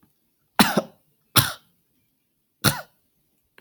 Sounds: Sniff